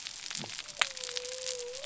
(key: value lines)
label: biophony
recorder: SoundTrap 300